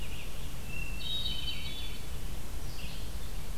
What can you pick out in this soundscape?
Red-eyed Vireo, Hermit Thrush